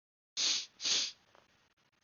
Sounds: Sniff